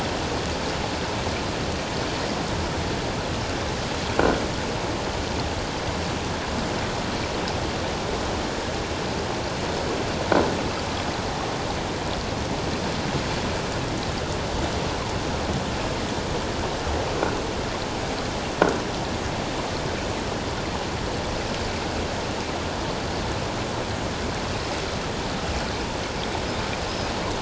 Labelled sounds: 26.9	27.1	Pacific white-sided dolphin, 4.9 to 5.2 kHz

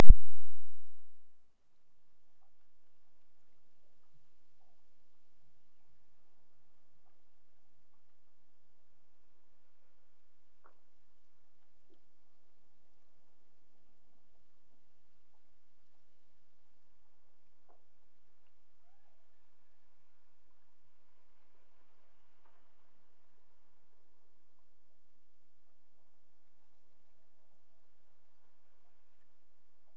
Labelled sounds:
18.7	20.0	killer whale, Bigg's (transient), Gulf of Alaska transient, 0.48 to 2.6 kHz

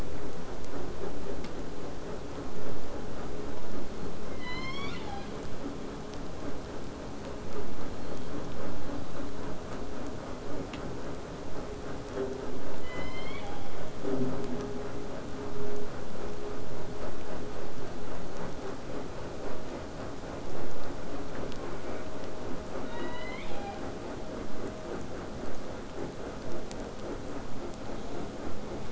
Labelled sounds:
4.3	5.3	killer whale, southern resident, J pod, call S01, 0.60 to 8.0 kHz
12.8	13.7	killer whale, southern resident, J pod, call S01, 0.66 to 7.4 kHz
21.6	22.1	killer whale, southern resident, J pod, call S04, 0.56 to 2.5 kHz
22.8	23.8	killer whale, southern resident, J pod, call S01, 0.67 to 5.7 kHz

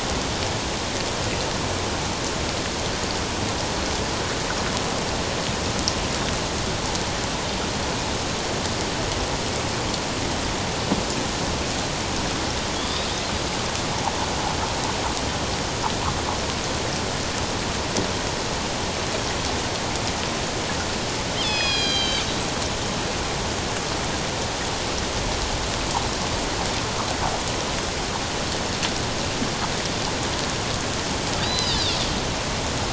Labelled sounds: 12.7	13.1	killer whale, northern resident, A clan, AB subclan, call N16, 3.2 to 3.9 kHz
21.4	22.3	killer whale, northern resident, A clan, AB subclan, call N01ii, 2.2 to 6.5 kHz
31.4	32.0	killer whale, northern resident, A clan, AB subclan, H01 pod, call N01iv, 3.2 to 5.1 kHz

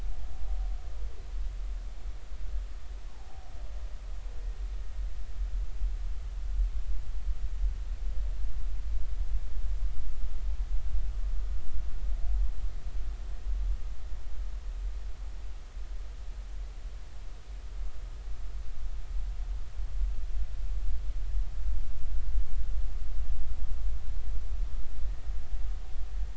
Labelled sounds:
3.1	3.4	humpback whale, 0.80 to 1.1 kHz

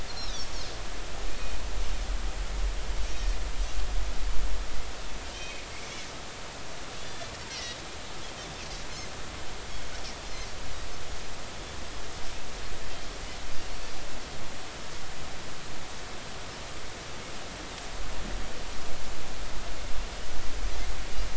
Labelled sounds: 0.1	0.3	Pacific white-sided dolphin, 4.0 to 5.7 kHz
1.3	1.5	Pacific white-sided dolphin, 2.4 to 2.6 kHz
3.0	3.4	Pacific white-sided dolphin, 5.4 to 6.4 kHz
5.3	5.6	Pacific white-sided dolphin, 2.4 to 5.7 kHz
7.0	7.8	Pacific white-sided dolphin, 1.9 to 6.0 kHz

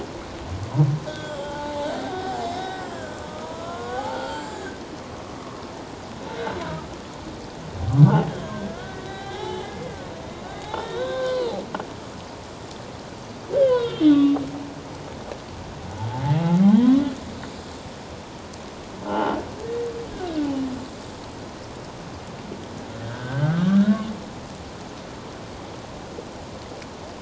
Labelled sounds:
1.1	4.8	humpback whale, 0.78 to 7.5 kHz
6.3	6.6	humpback whale, 3.8 to 4.1 kHz
8.4	10.1	humpback whale, 0.78 to 4.0 kHz
10.6	11.6	humpback whale, 0.78 to 4.1 kHz
13.6	14.4	humpback whale, 1.1 to 4.0 kHz
16.0	17.0	humpback whale, 0.78 to 3.6 kHz
19.1	19.5	humpback whale, 0.81 to 3.1 kHz
23.0	24.1	humpback whale, 1.0 to 1.8 kHz

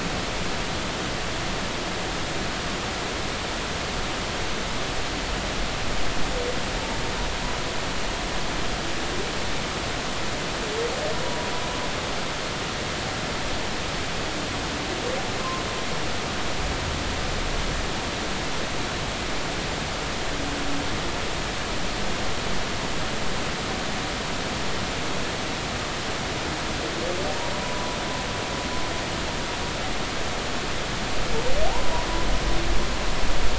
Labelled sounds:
27.6	28.0	humpback whale, 0.96 to 1.0 kHz
31.7	31.9	humpback whale, 0.80 to 1.1 kHz

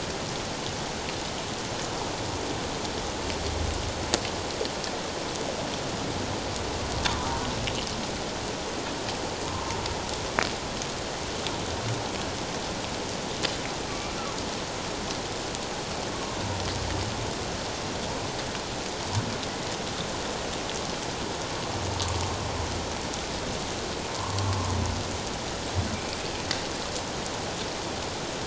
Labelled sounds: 7.2	7.4	humpback whale, 0.88 to 1.0 kHz
9.5	9.7	humpback whale, 1.0 to 1.1 kHz
16.1	16.4	humpback whale, 0.91 to 1.2 kHz
24.2	24.4	humpback whale, 0.88 to 1.2 kHz

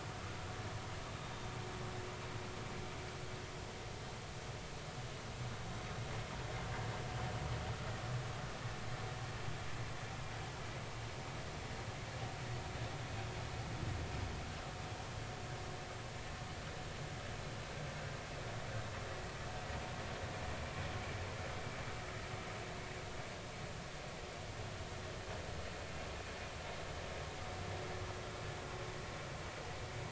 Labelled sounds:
1.2	1.5	Pacific white-sided dolphin, 3.6 to 3.7 kHz

